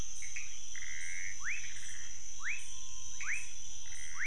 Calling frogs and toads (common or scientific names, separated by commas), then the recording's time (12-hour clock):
rufous frog, Pithecopus azureus
1:00am